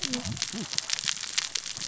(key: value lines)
label: biophony, cascading saw
recorder: SoundTrap 600 or HydroMoth